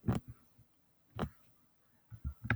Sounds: Sneeze